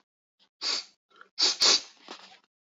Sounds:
Sniff